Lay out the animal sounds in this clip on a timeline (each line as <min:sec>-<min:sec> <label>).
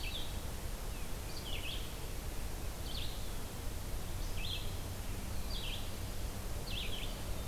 0:00.0-0:07.5 Red-eyed Vireo (Vireo olivaceus)
0:06.9-0:07.5 Eastern Wood-Pewee (Contopus virens)